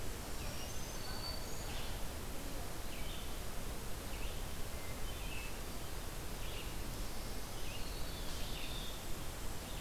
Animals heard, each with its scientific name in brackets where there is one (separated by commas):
Hermit Thrush (Catharus guttatus), Black-throated Green Warbler (Setophaga virens), Red-eyed Vireo (Vireo olivaceus)